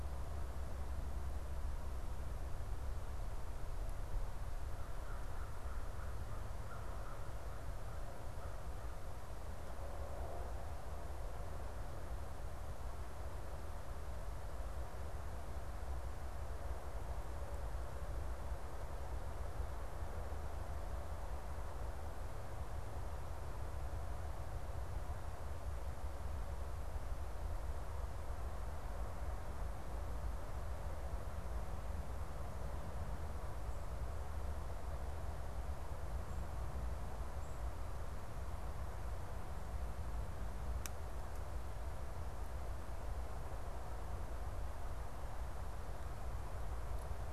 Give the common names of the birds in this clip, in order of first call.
American Crow